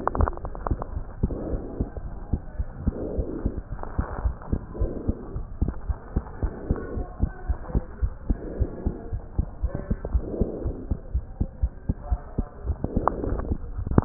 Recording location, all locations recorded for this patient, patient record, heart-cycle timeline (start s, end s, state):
pulmonary valve (PV)
aortic valve (AV)+pulmonary valve (PV)+tricuspid valve (TV)+mitral valve (MV)
#Age: Child
#Sex: Male
#Height: 113.0 cm
#Weight: 18.4 kg
#Pregnancy status: False
#Murmur: Absent
#Murmur locations: nan
#Most audible location: nan
#Systolic murmur timing: nan
#Systolic murmur shape: nan
#Systolic murmur grading: nan
#Systolic murmur pitch: nan
#Systolic murmur quality: nan
#Diastolic murmur timing: nan
#Diastolic murmur shape: nan
#Diastolic murmur grading: nan
#Diastolic murmur pitch: nan
#Diastolic murmur quality: nan
#Outcome: Normal
#Campaign: 2015 screening campaign
0.00	4.61	unannotated
4.61	4.79	diastole
4.79	4.92	S1
4.92	5.06	systole
5.06	5.16	S2
5.16	5.34	diastole
5.34	5.46	S1
5.46	5.60	systole
5.60	5.74	S2
5.74	5.88	diastole
5.88	5.98	S1
5.98	6.14	systole
6.14	6.26	S2
6.26	6.42	diastole
6.42	6.52	S1
6.52	6.68	systole
6.68	6.78	S2
6.78	6.94	diastole
6.94	7.06	S1
7.06	7.22	systole
7.22	7.32	S2
7.32	7.48	diastole
7.48	7.58	S1
7.58	7.74	systole
7.74	7.84	S2
7.84	8.00	diastole
8.00	8.14	S1
8.14	8.28	systole
8.28	8.38	S2
8.38	8.56	diastole
8.56	8.70	S1
8.70	8.84	systole
8.84	8.96	S2
8.96	9.12	diastole
9.12	9.22	S1
9.22	9.34	systole
9.34	9.46	S2
9.46	9.62	diastole
9.62	9.72	S1
9.72	9.86	systole
9.86	9.98	S2
9.98	10.12	diastole
10.12	10.28	S1
10.28	10.40	systole
10.40	10.50	S2
10.50	10.64	diastole
10.64	10.76	S1
10.76	10.88	systole
10.88	11.00	S2
11.00	11.14	diastole
11.14	11.24	S1
11.24	11.36	systole
11.36	11.48	S2
11.48	11.62	diastole
11.62	11.72	S1
11.72	11.88	systole
11.88	11.96	S2
11.96	12.08	diastole
12.08	12.20	S1
12.20	12.34	systole
12.34	12.46	S2
12.46	12.59	diastole
12.59	14.05	unannotated